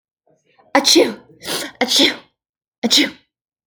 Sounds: Sneeze